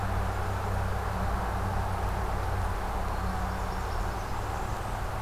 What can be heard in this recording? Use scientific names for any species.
Setophaga fusca